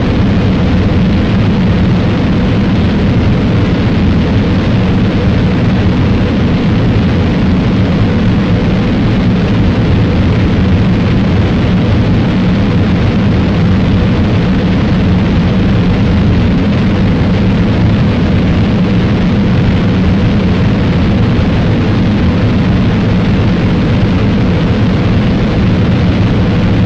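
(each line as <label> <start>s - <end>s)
The sound of a powerful rocket launch or heavy thruster gradually fades. 0.2s - 26.9s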